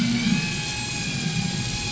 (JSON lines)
{"label": "anthrophony, boat engine", "recorder": "SoundTrap 500"}